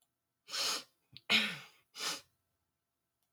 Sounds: Sniff